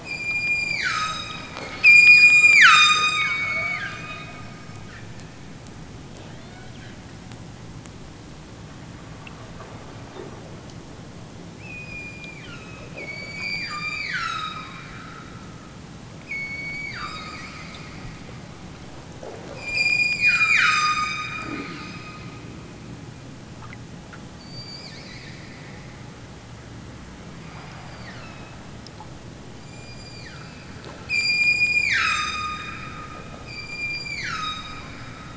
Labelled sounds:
0.0	1.5	killer whale, southern Alaska resident, 0.87 to 8.0 kHz
1.8	4.4	killer whale, southern Alaska resident, 0.69 to 8.0 kHz
6.3	6.8	killer whale, southern Alaska resident, 1.1 to 5.2 kHz
11.6	14.7	killer whale, southern Alaska resident, 0.83 to 8.0 kHz
16.2	17.6	killer whale, southern Alaska resident, 0.83 to 8.0 kHz
19.5	21.6	killer whale, southern Alaska resident, 0.78 to 8.0 kHz
24.3	25.3	killer whale, southern Alaska resident, 1.2 to 8.0 kHz
27.4	28.6	killer whale, southern Alaska resident, 1.0 to 7.9 kHz
29.6	30.7	killer whale, southern Alaska resident, 0.92 to 8.0 kHz
31.1	32.8	killer whale, southern Alaska resident, 0.78 to 8.0 kHz
33.4	34.9	killer whale, southern Alaska resident, 0.87 to 8.0 kHz

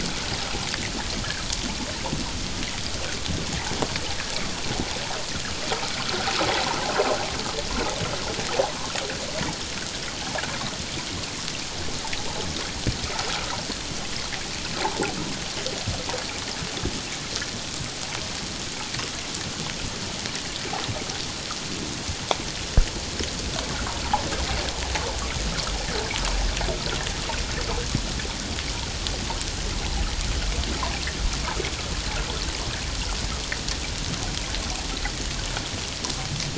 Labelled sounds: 6.1	6.3	water noise, 1.3 to 1.6 kHz

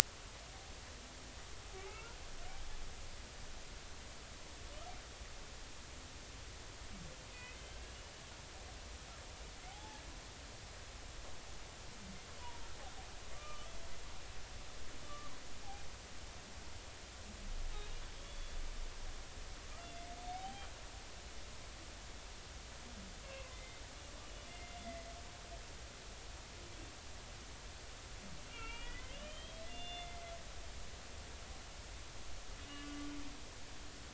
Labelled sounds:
1.9	2.2	humpback whale, 1.2 to 1.5 kHz
7.3	7.8	humpback whale, 1.9 to 3.3 kHz
9.7	10.0	humpback whale, 0.80 to 0.93 kHz
13.3	13.7	humpback whale, 1.1 to 1.3 kHz
15.0	15.3	humpback whale, 1.1 to 1.2 kHz
18.2	18.6	humpback whale, 3.4 to 3.5 kHz
20.3	20.7	humpback whale, 0.80 to 3.2 kHz
23.2	23.8	humpback whale, 0.99 to 2.8 kHz
24.5	24.8	humpback whale, 2.0 to 2.1 kHz
28.5	30.2	humpback whale, 1.2 to 3.6 kHz
32.7	33.0	humpback whale, 1.1 to 2.9 kHz

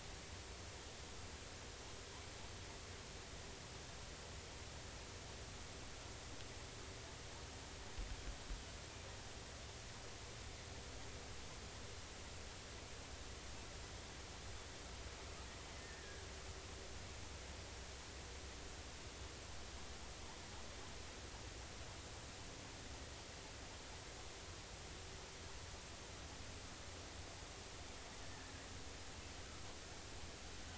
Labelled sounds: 16.8	17.2	killer whale, offshore, 1.6 to 1.9 kHz
28.2	28.5	killer whale, offshore, 1.5 to 2.0 kHz

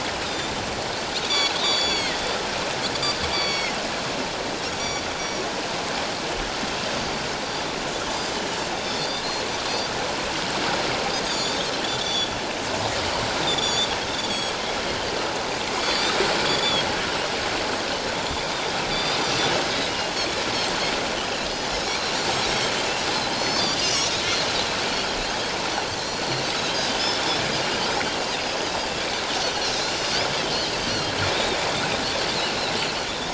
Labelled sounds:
0.2	0.5	Pacific white-sided dolphin, 3.5 to 7.4 kHz
1.2	2.2	Pacific white-sided dolphin, 1.8 to 7.1 kHz
3.3	3.7	Pacific white-sided dolphin, 2.0 to 6.9 kHz
4.8	5.4	Pacific white-sided dolphin, 4.5 to 7.0 kHz
8.9	9.3	Pacific white-sided dolphin, 3.5 to 4.9 kHz
11.3	12.3	Pacific white-sided dolphin, 3.3 to 7.1 kHz
13.4	14.6	Pacific white-sided dolphin, 3.3 to 7.9 kHz
15.8	16.2	Pacific white-sided dolphin, 3.3 to 8.0 kHz
16.5	16.9	Pacific white-sided dolphin, 3.2 to 7.1 kHz
18.9	20.0	Pacific white-sided dolphin, 3.4 to 6.1 kHz
21.8	22.1	Pacific white-sided dolphin, 4.0 to 4.5 kHz
23.3	24.1	Pacific white-sided dolphin, 2.7 to 6.4 kHz
24.5	24.7	Pacific white-sided dolphin, 3.9 to 4.1 kHz
26.0	26.2	Pacific white-sided dolphin, 3.9 to 4.4 kHz
29.8	31.6	Pacific white-sided dolphin, 2.8 to 6.0 kHz
33.0	33.3	Pacific white-sided dolphin, 3.3 to 3.8 kHz

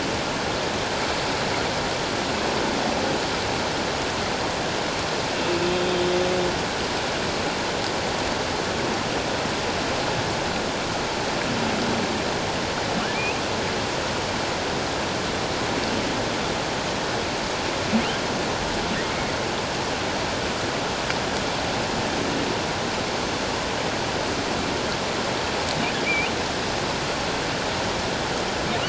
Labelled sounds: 13.1	13.4	humpback whale, 2.2 to 2.8 kHz
26.0	26.3	humpback whale, 2.2 to 2.6 kHz

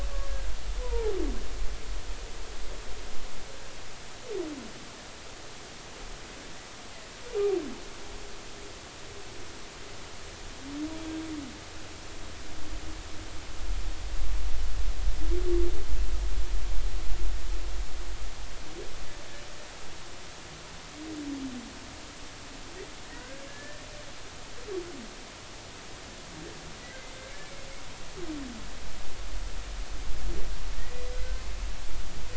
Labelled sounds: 0.8	1.1	humpback whale, 0.80 to 1.1 kHz
23.5	24.4	humpback whale, 1.4 to 1.9 kHz
26.8	27.1	humpback whale, 1.9 to 2.1 kHz

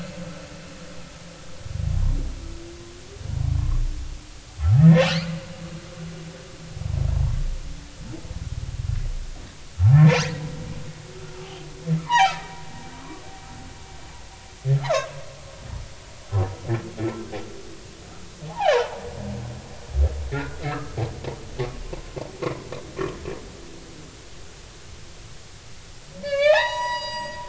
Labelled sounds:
4.6	5.1	humpback whale, 1.2 to 1.9 kHz
9.8	10.2	humpback whale, 0.80 to 2.2 kHz
11.4	12.5	humpback whale, 0.80 to 5.0 kHz
13.0	13.3	humpback whale, 1.0 to 1.2 kHz
14.8	15.1	humpback whale, 0.80 to 1.4 kHz
18.5	18.9	humpback whale, 0.80 to 1.9 kHz
20.3	21.0	humpback whale, 1.0 to 1.5 kHz
21.9	22.1	humpback whale, 0.99 to 1.1 kHz
26.2	27.4	humpback whale, 0.80 to 7.8 kHz

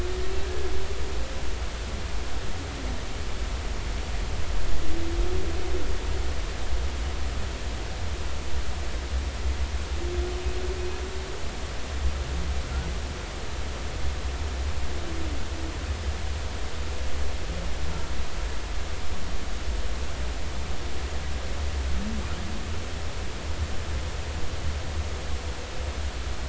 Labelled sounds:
0.4	0.7	humpback whale, 1.5 to 1.7 kHz

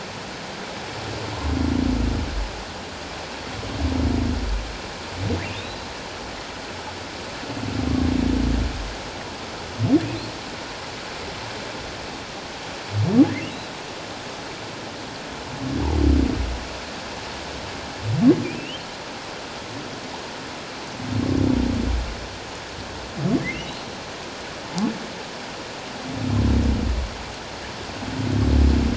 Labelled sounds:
5.4	5.8	humpback whale, 2.2 to 4.1 kHz
18.4	18.8	humpback whale, 2.3 to 3.2 kHz
23.5	23.8	humpback whale, 2.6 to 3.0 kHz

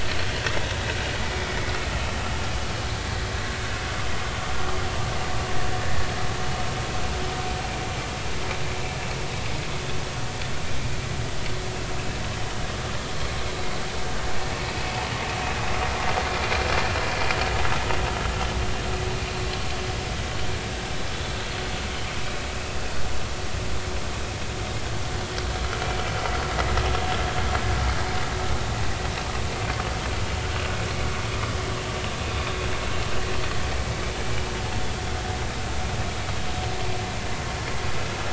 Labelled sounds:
5.8	6.1	vessel noise, 1.7 to 1.9 kHz
14.7	15.0	vessel noise, 2.5 to 2.7 kHz

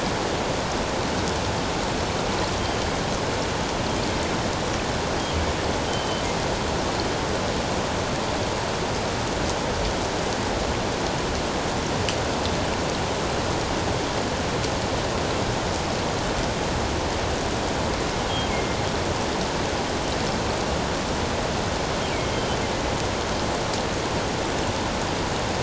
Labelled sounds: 5.9	6.2	killer whale, northern resident, G clan, GG subclan, 3.0 to 3.2 kHz
18.5	18.8	killer whale, northern resident, G clan, GG subclan, 2.1 to 2.3 kHz

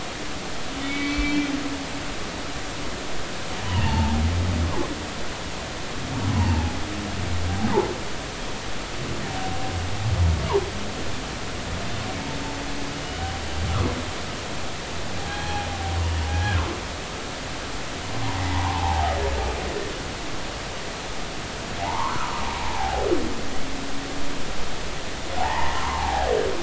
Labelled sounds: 0.8	1.5	humpback whale, 2.1 to 2.4 kHz
3.6	4.2	humpback whale, 0.83 to 3.1 kHz
6.4	6.8	humpback whale, 0.80 to 1.1 kHz
15.2	15.7	humpback whale, 0.80 to 3.4 kHz
16.3	16.6	humpback whale, 1.5 to 1.7 kHz
18.4	19.1	humpback whale, 0.80 to 2.1 kHz
21.8	23.0	humpback whale, 0.80 to 1.5 kHz
25.4	26.3	humpback whale, 0.80 to 1.2 kHz

